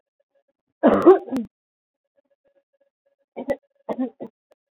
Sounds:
Throat clearing